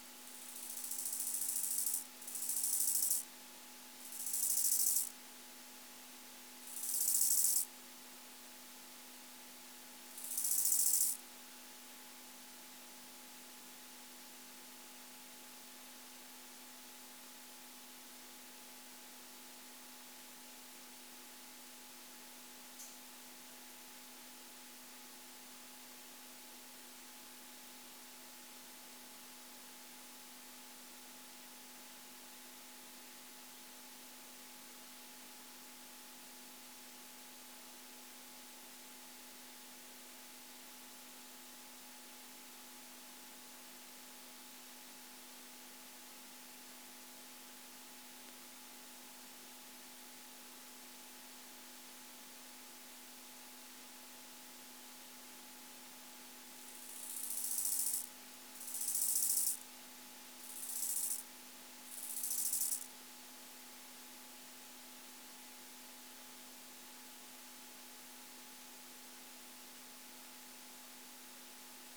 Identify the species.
Chorthippus biguttulus